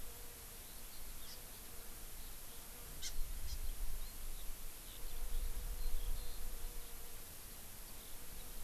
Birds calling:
Eurasian Skylark (Alauda arvensis)
Hawaii Amakihi (Chlorodrepanis virens)

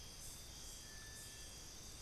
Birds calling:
Little Tinamou (Crypturellus soui)

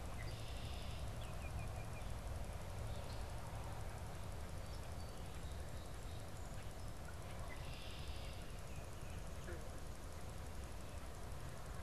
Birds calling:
Red-winged Blackbird (Agelaius phoeniceus)
Baltimore Oriole (Icterus galbula)
Song Sparrow (Melospiza melodia)

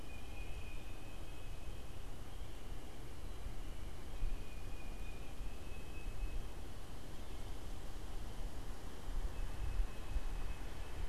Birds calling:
Tufted Titmouse (Baeolophus bicolor)

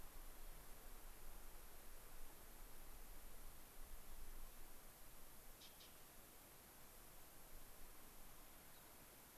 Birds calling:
unidentified bird

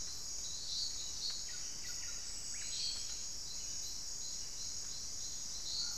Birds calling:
Buff-breasted Wren (Cantorchilus leucotis)

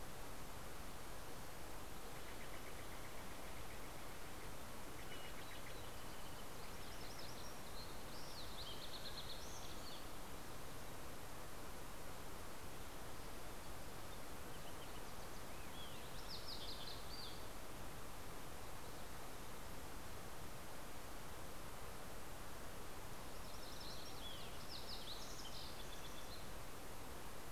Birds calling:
Steller's Jay (Cyanocitta stelleri)
MacGillivray's Warbler (Geothlypis tolmiei)
Fox Sparrow (Passerella iliaca)

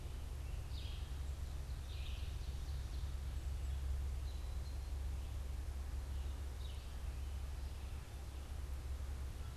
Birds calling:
Red-eyed Vireo (Vireo olivaceus)
Ovenbird (Seiurus aurocapilla)

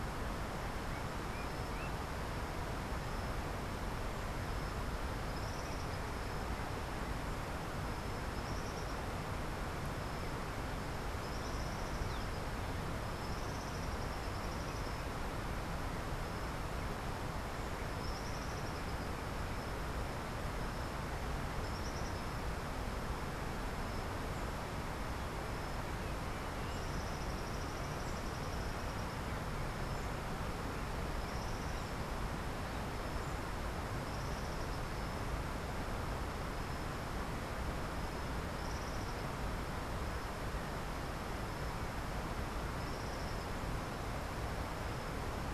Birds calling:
Tropical Kingbird (Tyrannus melancholicus)

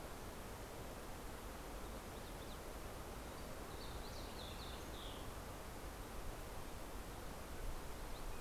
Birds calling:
Fox Sparrow (Passerella iliaca)

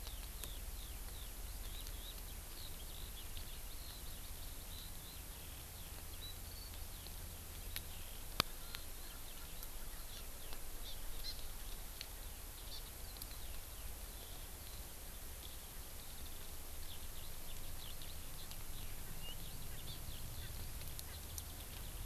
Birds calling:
Hawaii Amakihi (Chlorodrepanis virens)
Eurasian Skylark (Alauda arvensis)

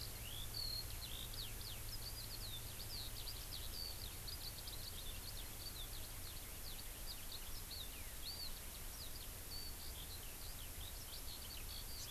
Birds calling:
Eurasian Skylark (Alauda arvensis)

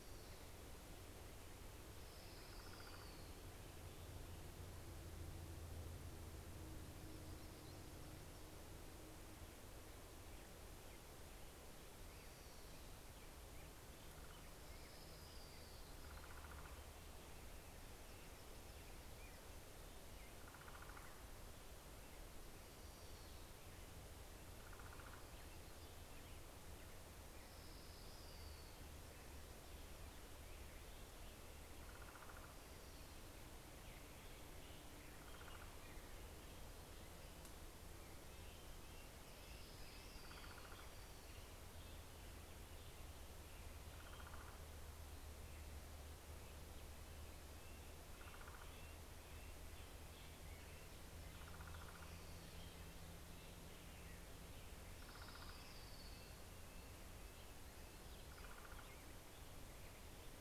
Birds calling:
Common Raven (Corvus corax)
Orange-crowned Warbler (Leiothlypis celata)
American Robin (Turdus migratorius)
Hermit Warbler (Setophaga occidentalis)
Red-breasted Nuthatch (Sitta canadensis)

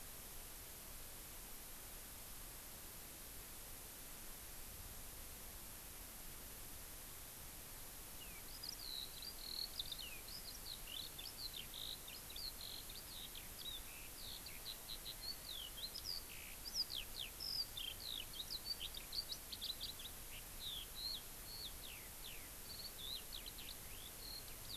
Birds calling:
Eurasian Skylark (Alauda arvensis)

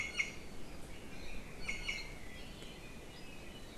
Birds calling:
Iiwi (Drepanis coccinea)

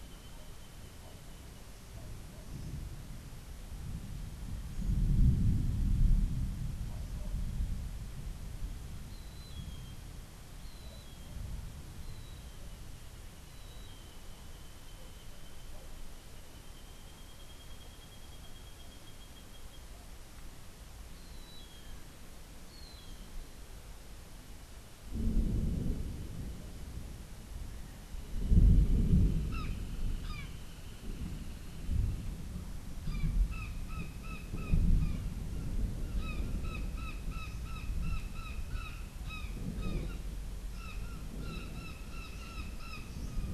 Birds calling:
Gray Hawk (Buteo plagiatus)
Brown Jay (Psilorhinus morio)

